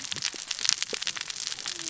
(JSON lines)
{"label": "biophony, cascading saw", "recorder": "SoundTrap 600 or HydroMoth"}